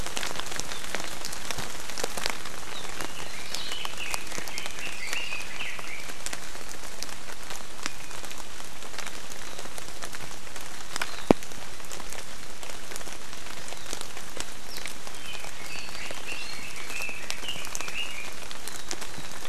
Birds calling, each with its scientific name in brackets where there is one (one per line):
Red-billed Leiothrix (Leiothrix lutea)